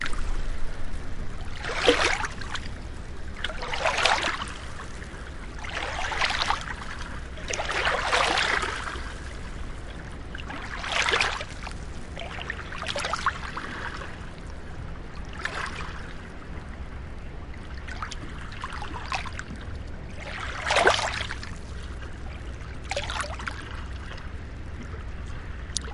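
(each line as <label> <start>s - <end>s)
Waves lap quietly, with the sound increasing and decreasing depending on their proximity to the recording device. 2.1s - 4.6s
Waves lap quietly with volume rising and falling depending on their proximity to the microphone. 6.0s - 7.2s
Waves lap quietly, with the sound increasing and decreasing depending on their proximity to the recording device. 7.8s - 9.0s
Waves lap quietly with volume rising and falling depending on their proximity to the microphone. 11.0s - 11.9s
Waves lap quietly, with the sound increasing and decreasing depending on their proximity to the recording device. 13.1s - 14.2s
Waves lap quietly, with the sound increasing and decreasing depending on their proximity to the recording device. 15.7s - 16.5s
Waves lap quietly, with the sound increasing and decreasing depending on their proximity to the recording device. 18.5s - 20.0s
Waves lap quietly, with the sound increasing and decreasing depending on their proximity to the recording device. 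20.7s - 22.1s
Waves lap quietly, with the sound increasing and decreasing depending on their proximity to the recording device. 23.4s - 24.2s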